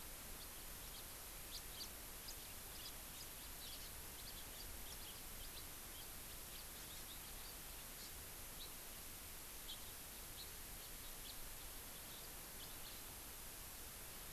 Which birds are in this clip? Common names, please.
House Finch, Hawaii Amakihi